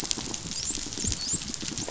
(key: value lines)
label: biophony, dolphin
recorder: SoundTrap 500